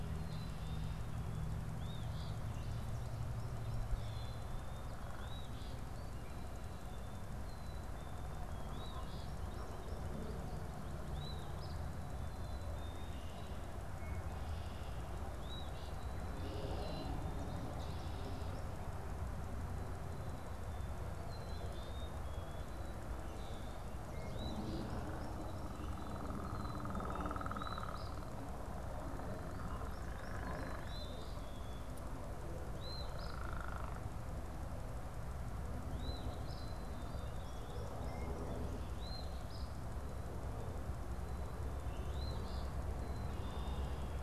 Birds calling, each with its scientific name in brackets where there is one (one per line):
Red-winged Blackbird (Agelaius phoeniceus)
Eastern Phoebe (Sayornis phoebe)
American Goldfinch (Spinus tristis)
Black-capped Chickadee (Poecile atricapillus)
Common Grackle (Quiscalus quiscula)